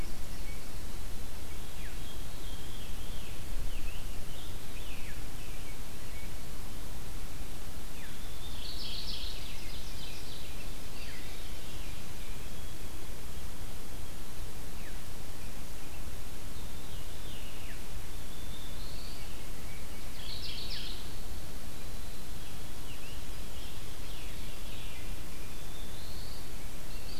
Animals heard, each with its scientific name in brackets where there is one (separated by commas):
Ovenbird (Seiurus aurocapilla), Veery (Catharus fuscescens), Black-throated Blue Warbler (Setophaga caerulescens), Scarlet Tanager (Piranga olivacea), Black-capped Chickadee (Poecile atricapillus), Mourning Warbler (Geothlypis philadelphia), American Robin (Turdus migratorius)